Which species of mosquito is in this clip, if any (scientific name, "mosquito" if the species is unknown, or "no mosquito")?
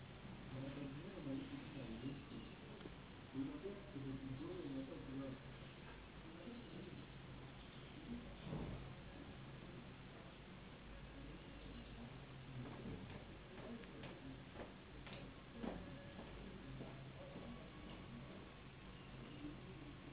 Anopheles gambiae s.s.